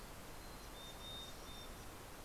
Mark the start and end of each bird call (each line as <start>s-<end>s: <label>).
0.0s-2.0s: Mountain Chickadee (Poecile gambeli)
0.9s-2.2s: Dusky Flycatcher (Empidonax oberholseri)